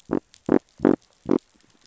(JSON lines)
{"label": "biophony", "recorder": "SoundTrap 500"}